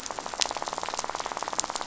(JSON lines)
{"label": "biophony, rattle", "recorder": "SoundTrap 500"}